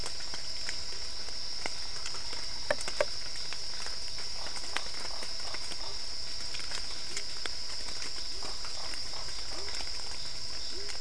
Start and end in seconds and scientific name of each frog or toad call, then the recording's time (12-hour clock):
2.2	11.0	Dendropsophus cruzi
4.3	6.1	Boana lundii
8.3	9.8	Boana lundii
8:30pm